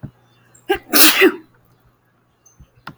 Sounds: Sneeze